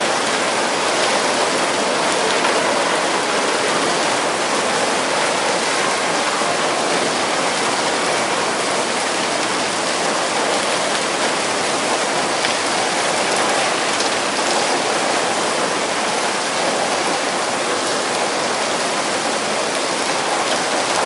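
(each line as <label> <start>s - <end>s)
A strong wind blows outdoors. 0.0s - 21.1s
Heavy rain pours down with a loud, continuous rush on a rooftop. 0.0s - 21.1s
An ambulance siren wails with a high-pitched, repeating pattern in the distance. 5.6s - 7.6s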